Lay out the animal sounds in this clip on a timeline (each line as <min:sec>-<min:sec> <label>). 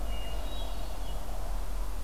0:00.0-0:01.3 Hermit Thrush (Catharus guttatus)